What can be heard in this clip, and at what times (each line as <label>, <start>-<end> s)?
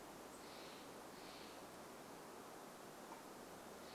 unidentified bird chip note, 0-2 s
Steller's Jay call, 0-4 s